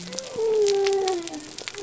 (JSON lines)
{"label": "biophony", "recorder": "SoundTrap 300"}